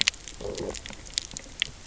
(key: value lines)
label: biophony, low growl
recorder: SoundTrap 300